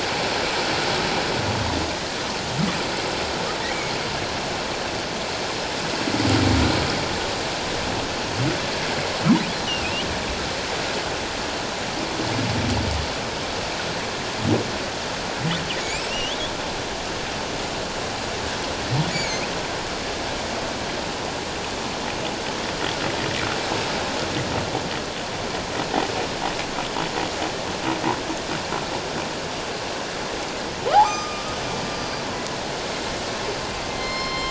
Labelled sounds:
9.7	9.9	humpback whale, 2.4 to 3.0 kHz
15.8	16.4	humpback whale, 2.2 to 3.5 kHz
19.1	19.5	humpback whale, 2.0 to 7.0 kHz
31.0	31.5	humpback whale, 1.1 to 5.0 kHz
31.9	32.2	humpback whale, 4.7 to 4.8 kHz

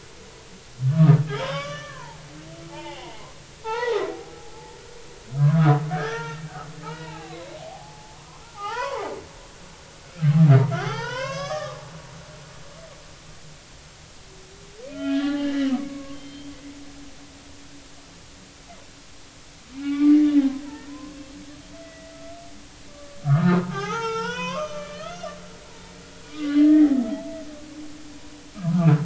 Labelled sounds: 0.9	2.2	humpback whale, 0.80 to 6.0 kHz
2.7	3.2	humpback whale, 0.80 to 3.1 kHz
3.6	4.0	humpback whale, 0.80 to 3.9 kHz
5.4	6.5	humpback whale, 0.86 to 1.9 kHz
6.8	8.2	humpback whale, 0.80 to 3.0 kHz
8.5	9.1	humpback whale, 0.80 to 4.6 kHz
10.1	11.8	humpback whale, 0.80 to 6.7 kHz
12.4	12.8	humpback whale, 0.80 to 0.86 kHz
14.9	15.5	humpback whale, 0.80 to 3.5 kHz
15.8	16.8	humpback whale, 1.0 to 3.3 kHz
19.8	20.4	humpback whale, 1.1 to 2.4 kHz
20.9	21.2	humpback whale, 0.96 to 1.1 kHz
21.8	22.1	humpback whale, 1.9 to 2.0 kHz
22.9	25.3	humpback whale, 0.80 to 6.5 kHz
26.3	27.0	humpback whale, 1.1 to 2.1 kHz
28.6	28.9	humpback whale, 1.1 to 1.5 kHz

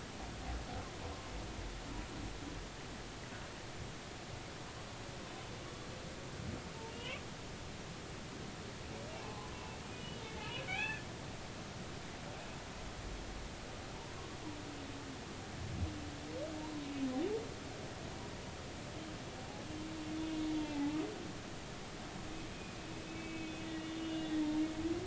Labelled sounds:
6.9	7.2	humpback whale, 2.4 to 3.2 kHz
9.1	11.1	humpback whale, 0.80 to 3.6 kHz
16.6	16.9	humpback whale, 0.86 to 1.1 kHz
20.7	21.0	humpback whale, 0.80 to 0.93 kHz
23.1	24.6	humpback whale, 1.9 to 3.9 kHz

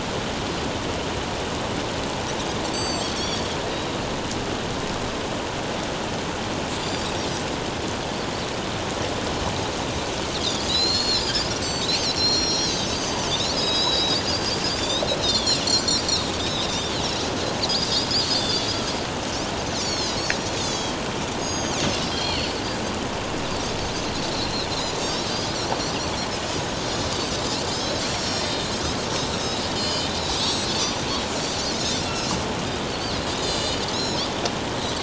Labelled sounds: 2.7	3.4	Pacific white-sided dolphin, 3.2 to 7.8 kHz
3.7	3.9	Pacific white-sided dolphin, 3.7 to 3.9 kHz
6.8	7.1	Pacific white-sided dolphin, 4.6 to 7.3 kHz
10.4	15.6	Pacific white-sided dolphin, 2.7 to 7.7 kHz
16.4	17.0	Pacific white-sided dolphin, 2.8 to 5.3 kHz
17.6	18.7	Pacific white-sided dolphin, 3.4 to 6.6 kHz
19.7	20.2	Pacific white-sided dolphin, 3.8 to 7.2 kHz
20.6	21.0	Pacific white-sided dolphin, 3.1 to 8.0 kHz
21.4	22.5	Pacific white-sided dolphin, 2.5 to 6.7 kHz
24.3	25.3	Pacific white-sided dolphin, 3.5 to 5.9 kHz
25.7	26.0	Pacific white-sided dolphin, 4.5 to 5.1 kHz
27.7	31.1	Pacific white-sided dolphin, 2.9 to 7.9 kHz
31.8	32.4	Pacific white-sided dolphin, 2.5 to 6.0 kHz
32.9	34.2	Pacific white-sided dolphin, 2.9 to 7.9 kHz

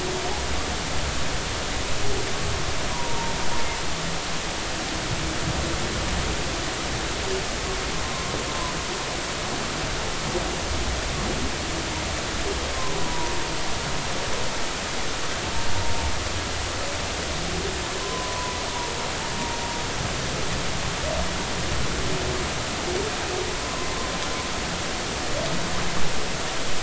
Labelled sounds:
2.9	3.3	humpback whale, 0.86 to 1.1 kHz
8.0	8.3	humpback whale, 0.96 to 1.1 kHz
12.7	13.4	humpback whale, 0.90 to 1.1 kHz
18.0	18.6	humpback whale, 0.93 to 1.1 kHz
23.6	23.9	humpback whale, 0.99 to 1.2 kHz

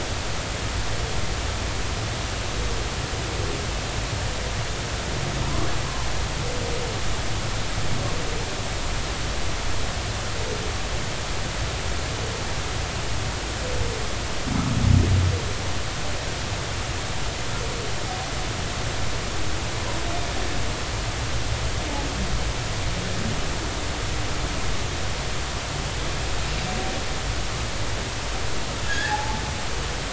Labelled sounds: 5.4	5.7	humpback whale, 0.90 to 1.2 kHz
28.9	29.4	humpback whale, 0.80 to 1.9 kHz

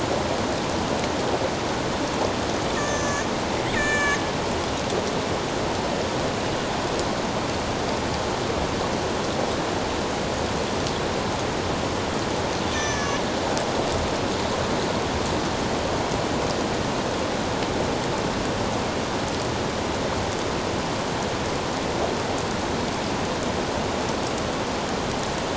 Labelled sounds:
2.8	3.3	killer whale, northern resident, A clan, AB subclan, 1.7 to 7.0 kHz
3.7	4.2	killer whale, northern resident, A clan, AB subclan, 1.7 to 7.7 kHz
12.7	13.2	killer whale, northern resident, A clan, AB subclan, 1.7 to 6.3 kHz

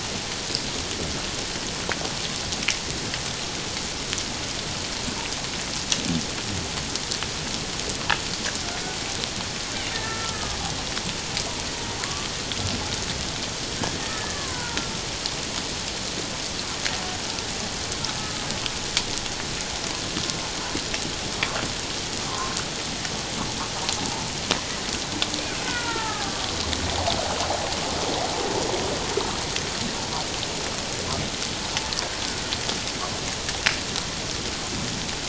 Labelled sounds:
9.9	10.6	killer whale, Bigg's (transient), 1.2 to 1.9 kHz
12.0	12.3	killer whale, Bigg's (transient), 0.97 to 1.2 kHz
14.0	14.9	killer whale, Bigg's (transient), 0.88 to 2.0 kHz
18.2	18.5	killer whale, Bigg's (transient), 1.2 to 1.3 kHz
22.3	22.6	humpback whale, 0.94 to 1.2 kHz
25.6	26.5	killer whale, Bigg's (transient), 0.81 to 1.9 kHz

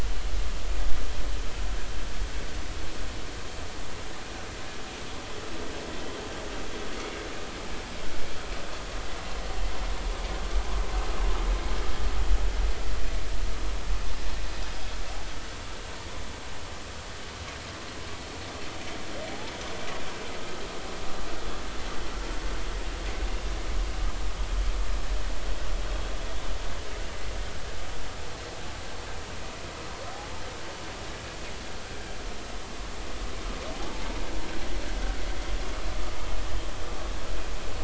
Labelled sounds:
33.7	34.0	humpback whale, 0.80 to 0.96 kHz
35.9	36.2	humpback whale, 1.2 to 1.3 kHz

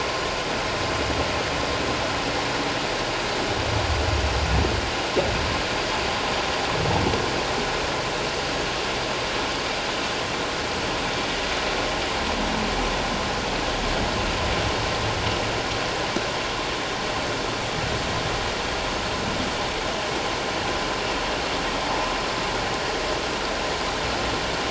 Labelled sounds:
21.8	22.1	humpback whale, 0.78 to 1.1 kHz

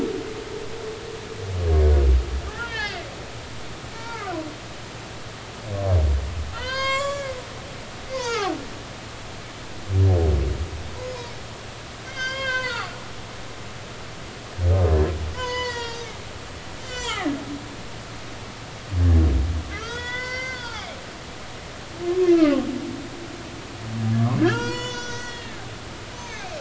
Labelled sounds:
2.6	3.0	humpback whale, 1.4 to 3.7 kHz
3.9	4.3	humpback whale, 0.83 to 2.4 kHz
6.5	7.3	humpback whale, 0.90 to 7.6 kHz
8.1	8.5	humpback whale, 0.80 to 5.5 kHz
12.0	12.9	humpback whale, 0.93 to 5.4 kHz
15.3	16.1	humpback whale, 0.86 to 7.3 kHz
16.8	17.4	humpback whale, 0.80 to 7.6 kHz
19.7	21.0	humpback whale, 0.80 to 6.2 kHz
22.3	22.6	humpback whale, 1.0 to 1.4 kHz
24.4	25.7	humpback whale, 0.90 to 7.0 kHz
26.2	26.5	humpback whale, 2.0 to 6.3 kHz

